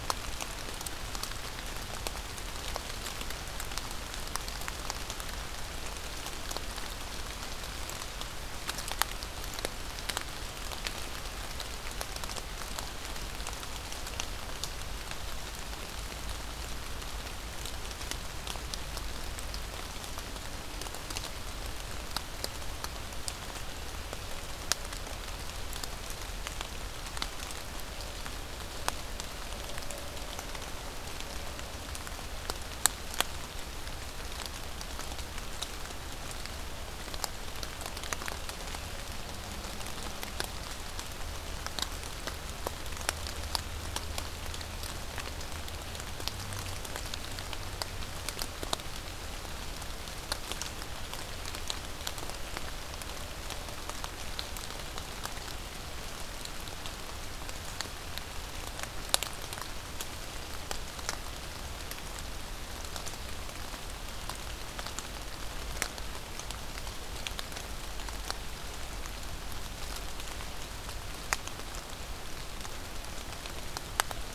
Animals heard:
forest ambience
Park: Marsh-Billings-Rockefeller National Historical Park